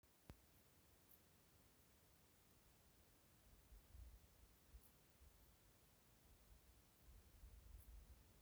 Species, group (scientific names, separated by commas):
Pholidoptera griseoaptera, Orthoptera